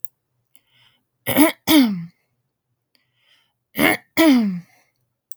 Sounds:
Throat clearing